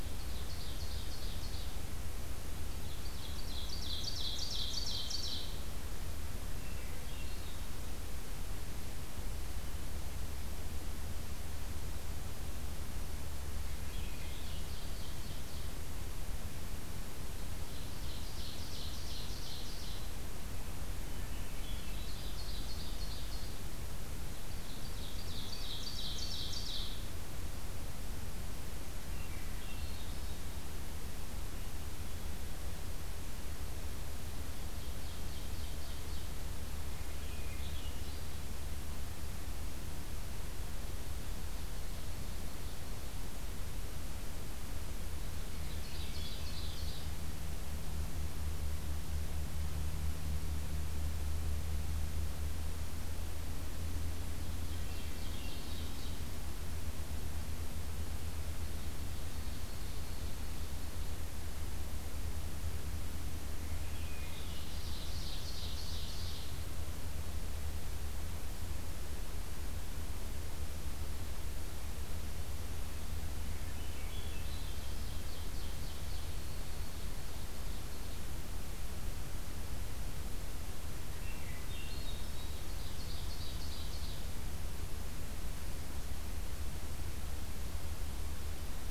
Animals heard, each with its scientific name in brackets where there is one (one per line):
Ovenbird (Seiurus aurocapilla)
Swainson's Thrush (Catharus ustulatus)
Dark-eyed Junco (Junco hyemalis)